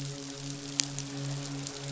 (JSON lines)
{"label": "biophony, midshipman", "recorder": "SoundTrap 500"}